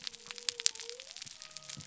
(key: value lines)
label: biophony
recorder: SoundTrap 300